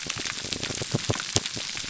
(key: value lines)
label: biophony, pulse
recorder: SoundTrap 300